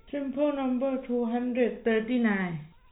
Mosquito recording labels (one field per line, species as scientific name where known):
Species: no mosquito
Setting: cup